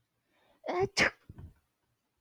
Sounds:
Sneeze